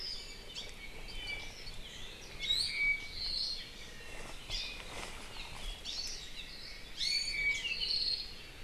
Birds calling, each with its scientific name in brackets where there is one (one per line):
Hawaii Creeper (Loxops mana)
Apapane (Himatione sanguinea)
Iiwi (Drepanis coccinea)